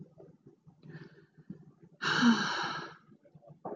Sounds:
Sigh